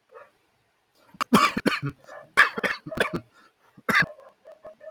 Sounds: Cough